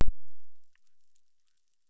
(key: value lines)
label: biophony, chorus
recorder: SoundTrap 600

label: biophony, crackle
recorder: SoundTrap 600